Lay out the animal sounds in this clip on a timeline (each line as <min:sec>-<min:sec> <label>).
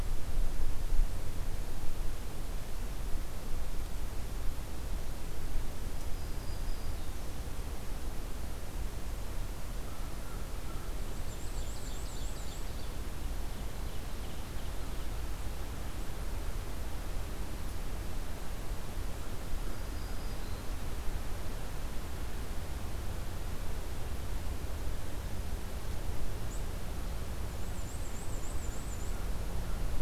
0:06.1-0:07.4 Black-throated Green Warbler (Setophaga virens)
0:09.8-0:11.0 American Crow (Corvus brachyrhynchos)
0:11.0-0:12.7 Black-and-white Warbler (Mniotilta varia)
0:11.1-0:15.0 Ovenbird (Seiurus aurocapilla)
0:19.6-0:20.8 Black-throated Green Warbler (Setophaga virens)
0:27.4-0:29.2 Black-and-white Warbler (Mniotilta varia)